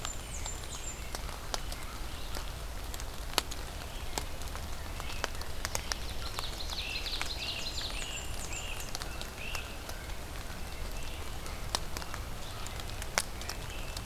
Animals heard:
Red-eyed Vireo (Vireo olivaceus), American Robin (Turdus migratorius), Black-throated Green Warbler (Setophaga virens), Blackburnian Warbler (Setophaga fusca), American Crow (Corvus brachyrhynchos), Great Crested Flycatcher (Myiarchus crinitus), Ovenbird (Seiurus aurocapilla)

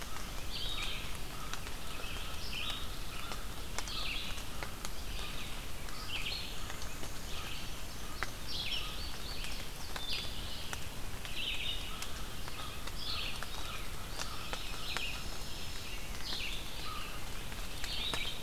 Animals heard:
Dark-eyed Junco (Junco hyemalis), Red-eyed Vireo (Vireo olivaceus), American Crow (Corvus brachyrhynchos), Black-and-white Warbler (Mniotilta varia), Indigo Bunting (Passerina cyanea)

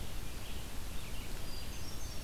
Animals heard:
Red-eyed Vireo (Vireo olivaceus), Hermit Thrush (Catharus guttatus)

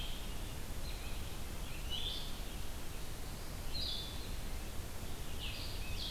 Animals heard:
Blue-headed Vireo (Vireo solitarius)

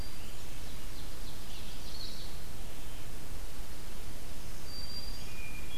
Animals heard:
Black-throated Green Warbler (Setophaga virens), Hermit Thrush (Catharus guttatus), Blue-headed Vireo (Vireo solitarius), Ovenbird (Seiurus aurocapilla)

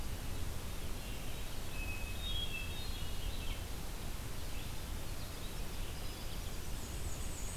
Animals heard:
Hermit Thrush (Catharus guttatus), Black-and-white Warbler (Mniotilta varia), Red-eyed Vireo (Vireo olivaceus)

